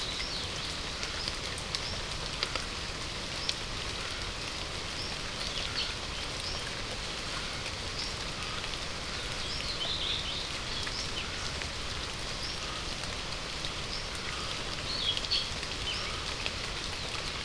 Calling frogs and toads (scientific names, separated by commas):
Scinax perereca